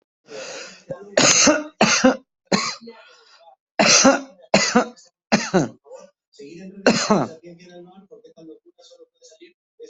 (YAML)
expert_labels:
- quality: ok
  cough_type: dry
  dyspnea: false
  wheezing: false
  stridor: false
  choking: false
  congestion: false
  nothing: true
  diagnosis: COVID-19
  severity: mild
age: 60
gender: female
respiratory_condition: false
fever_muscle_pain: true
status: COVID-19